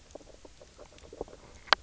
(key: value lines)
label: biophony, knock croak
recorder: SoundTrap 300